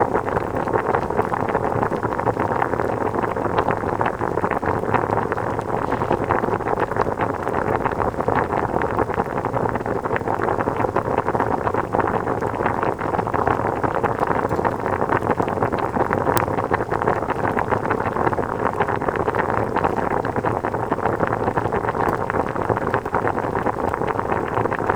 Does a door slam shut?
no